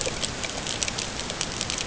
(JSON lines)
{"label": "ambient", "recorder": "HydroMoth"}